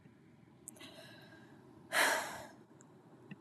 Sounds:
Sigh